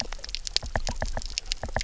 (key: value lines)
label: biophony, knock
recorder: SoundTrap 300